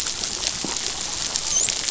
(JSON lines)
{"label": "biophony, dolphin", "recorder": "SoundTrap 500"}